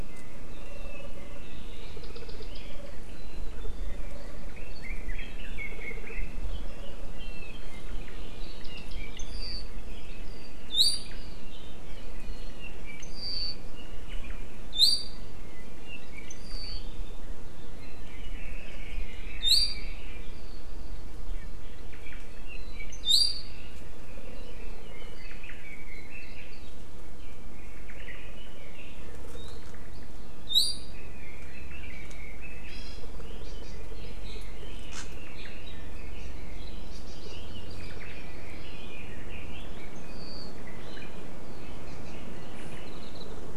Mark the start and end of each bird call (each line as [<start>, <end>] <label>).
[4.48, 6.48] Red-billed Leiothrix (Leiothrix lutea)
[6.48, 10.18] Apapane (Himatione sanguinea)
[15.38, 16.88] Apapane (Himatione sanguinea)
[17.68, 20.38] Red-billed Leiothrix (Leiothrix lutea)
[21.98, 23.88] Apapane (Himatione sanguinea)
[24.08, 26.68] Red-billed Leiothrix (Leiothrix lutea)
[27.18, 29.08] Red-billed Leiothrix (Leiothrix lutea)
[27.78, 28.28] Omao (Myadestes obscurus)
[30.98, 32.68] Red-billed Leiothrix (Leiothrix lutea)
[32.68, 33.78] Hawaii Amakihi (Chlorodrepanis virens)
[33.18, 36.68] Red-billed Leiothrix (Leiothrix lutea)
[36.88, 38.78] Hawaii Amakihi (Chlorodrepanis virens)
[37.28, 39.68] Red-billed Leiothrix (Leiothrix lutea)
[41.88, 42.18] Hawaii Amakihi (Chlorodrepanis virens)
[42.58, 42.98] Omao (Myadestes obscurus)